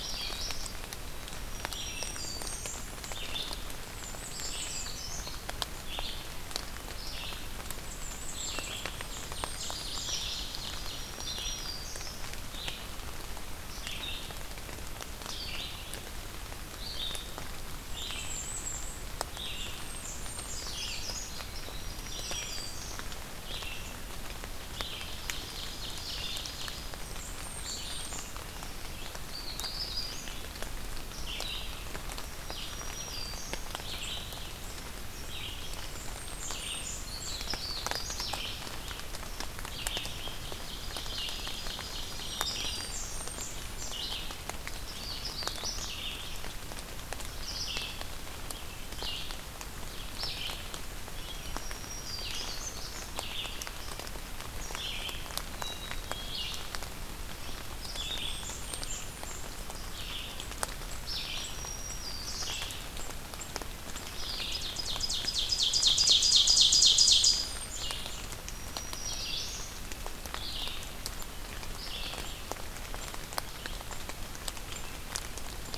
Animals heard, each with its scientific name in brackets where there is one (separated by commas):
Red-eyed Vireo (Vireo olivaceus), Blackburnian Warbler (Setophaga fusca), Black-and-white Warbler (Mniotilta varia), Ovenbird (Seiurus aurocapilla), Black-throated Green Warbler (Setophaga virens), Magnolia Warbler (Setophaga magnolia), Black-capped Chickadee (Poecile atricapillus)